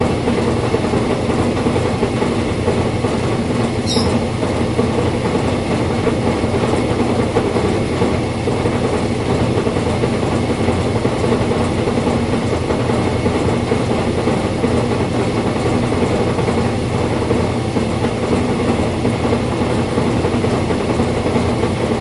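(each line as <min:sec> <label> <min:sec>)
0:00.0 Loud rumbling sound of a washing machine operating indoors. 0:22.0
0:03.8 A loud, high-pitched squeak caused by a washing machine. 0:04.5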